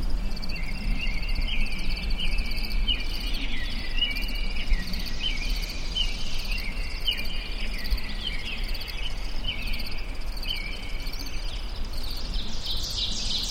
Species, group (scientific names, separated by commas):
Gryllus veletis, Orthoptera